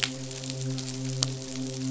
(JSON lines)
{"label": "biophony, midshipman", "recorder": "SoundTrap 500"}